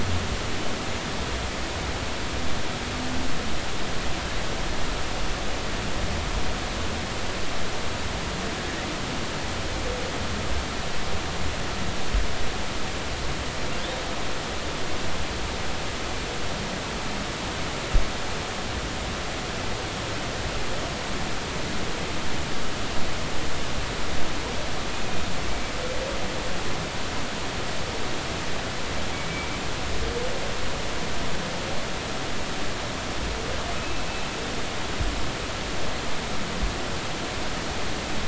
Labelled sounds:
33.8	34.1	humpback whale, 2.5 to 2.7 kHz

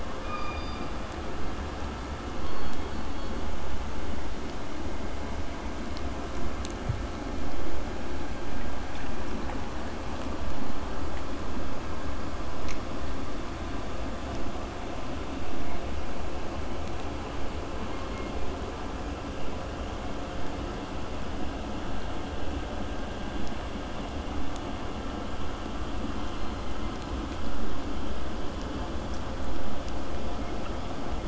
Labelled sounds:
0.2	1.0	killer whale, southern resident, K pod, call S16, 1.0 to 5.0 kHz
2.4	3.5	killer whale, southern resident, K pod, call S17, 3.1 to 4.5 kHz

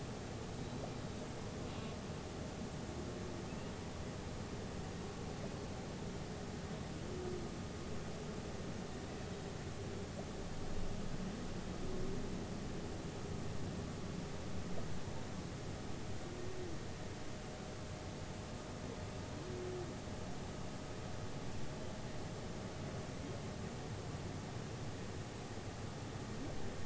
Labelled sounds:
0.6	0.8	humpback whale, 3.8 to 4.0 kHz
3.5	3.7	humpback whale, 2.5 to 2.9 kHz

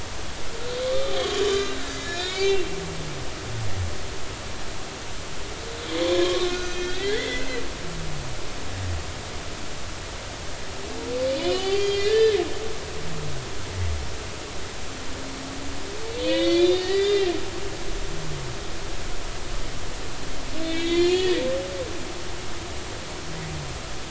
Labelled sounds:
0.8	2.7	humpback whale, 1.0 to 7.0 kHz
6.1	7.5	humpback whale, 0.99 to 6.2 kHz
11.5	12.4	humpback whale, 1.6 to 6.9 kHz
16.1	17.3	humpback whale, 1.8 to 5.1 kHz
20.6	21.4	humpback whale, 1.7 to 7.1 kHz

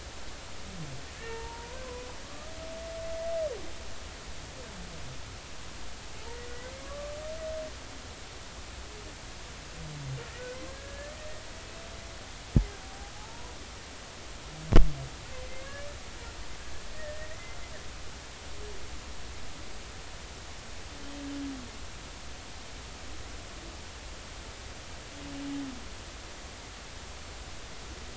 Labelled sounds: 1.2	2.5	humpback whale, 0.86 to 2.8 kHz
6.5	7.1	humpback whale, 1.1 to 2.2 kHz
10.7	11.2	humpback whale, 1.6 to 1.9 kHz
13.1	13.5	humpback whale, 0.80 to 1.1 kHz
15.3	15.7	humpback whale, 2.0 to 2.2 kHz
16.9	17.6	humpback whale, 1.7 to 2.1 kHz

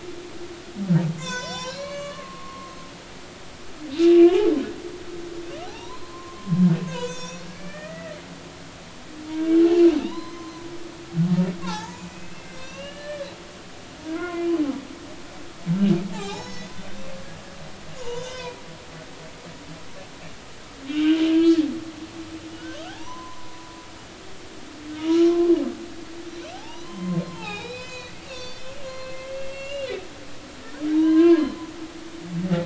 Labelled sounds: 1.2	2.7	humpback whale, 0.80 to 7.8 kHz
3.9	4.5	humpback whale, 2.6 to 3.1 kHz
5.6	8.2	humpback whale, 0.80 to 7.7 kHz
9.3	10.5	humpback whale, 0.86 to 4.1 kHz
11.6	13.3	humpback whale, 0.80 to 7.1 kHz
14.1	14.5	humpback whale, 0.96 to 2.2 kHz
16.1	16.7	humpback whale, 0.80 to 7.0 kHz
18.0	18.6	humpback whale, 0.86 to 6.2 kHz
20.9	21.2	humpback whale, 1.4 to 3.2 kHz
22.8	23.7	humpback whale, 0.80 to 1.1 kHz
25.0	25.5	humpback whale, 0.90 to 7.0 kHz
26.3	29.9	humpback whale, 0.80 to 7.4 kHz
30.9	31.5	humpback whale, 0.86 to 1.7 kHz

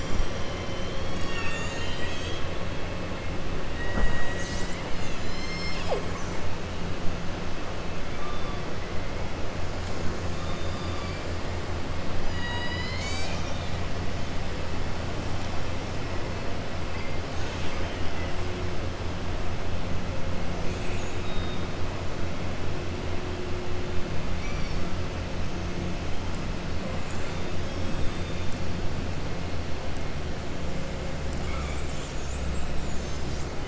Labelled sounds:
10.4	11.2	killer whale, southern resident, 2.3 to 4.8 kHz
31.4	31.8	killer whale, southern resident, 1.1 to 3.2 kHz
32.7	33.5	killer whale, southern resident, 4.7 to 7.9 kHz

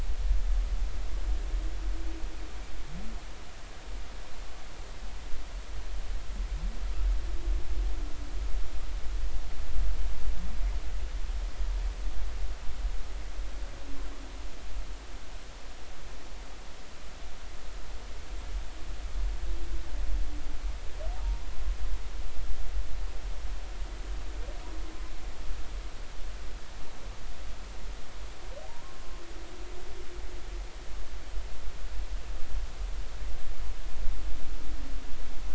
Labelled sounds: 21.2	21.4	humpback whale, 0.86 to 0.96 kHz

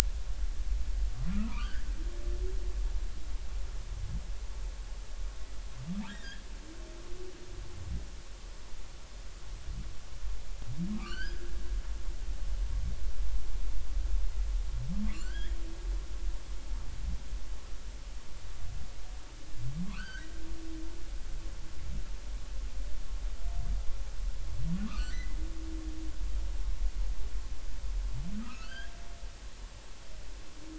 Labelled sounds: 1.3	1.9	humpback whale, 0.90 to 3.3 kHz
6.1	6.4	humpback whale, 1.5 to 2.0 kHz
10.9	11.6	humpback whale, 1.1 to 5.0 kHz
15.1	15.6	humpback whale, 1.1 to 4.5 kHz
19.9	20.3	humpback whale, 0.96 to 4.9 kHz
25.0	25.4	humpback whale, 1.7 to 2.1 kHz
26.0	26.2	humpback whale, 5.8 to 6.1 kHz
28.4	28.9	humpback whale, 1.2 to 4.9 kHz

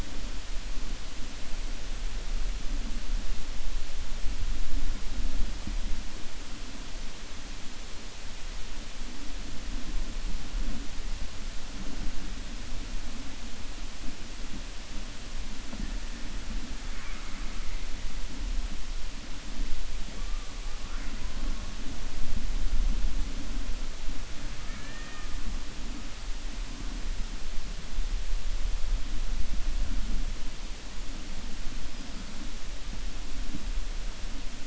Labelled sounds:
24.5	25.3	killer whale, 0.72 to 2.8 kHz

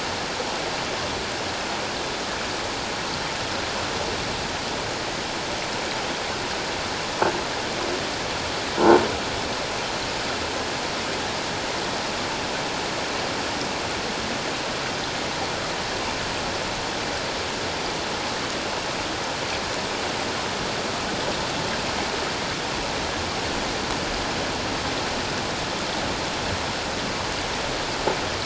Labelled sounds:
8.8	9.0	croaking sound likely from a nearby submerged object, 1.3 to 1.5 kHz

